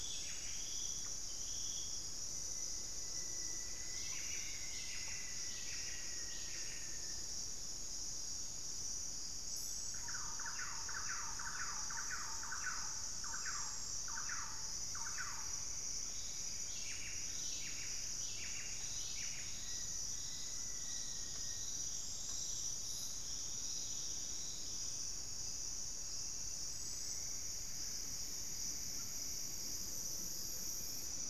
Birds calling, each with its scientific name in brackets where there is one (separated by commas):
Black-faced Antthrush (Formicarius analis), Thrush-like Wren (Campylorhynchus turdinus), unidentified bird, Buff-breasted Wren (Cantorchilus leucotis), Rufous-fronted Antthrush (Formicarius rufifrons)